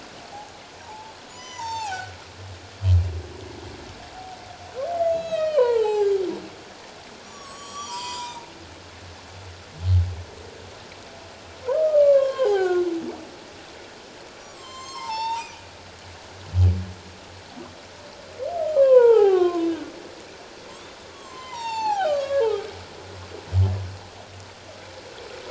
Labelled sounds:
0.8	2.1	humpback whale, 0.78 to 7.4 kHz
5.0	6.1	humpback whale, 0.78 to 7.4 kHz
7.2	8.5	humpback whale, 0.88 to 8.0 kHz
11.6	12.9	humpback whale, 0.78 to 4.2 kHz
14.4	15.7	humpback whale, 0.81 to 7.9 kHz
18.7	19.7	humpback whale, 0.78 to 2.8 kHz
21.1	22.5	humpback whale, 0.78 to 7.6 kHz

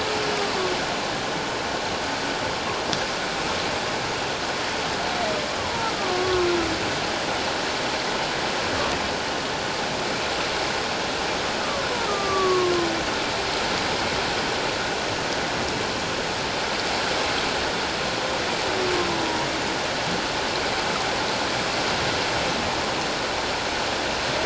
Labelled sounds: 5.6	6.5	humpback whale, 0.84 to 1.2 kHz
12.0	12.7	humpback whale, 1.0 to 1.4 kHz

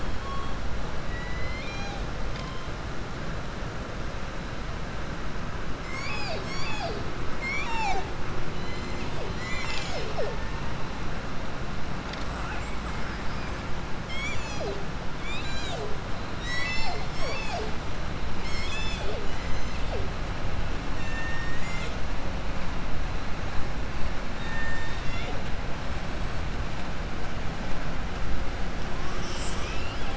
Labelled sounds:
1.0	2.0	killer whale, southern resident, 0.82 to 7.3 kHz
7.3	8.1	killer whale, southern resident, 0.70 to 7.5 kHz
24.3	25.4	killer whale, southern resident, 0.51 to 7.4 kHz

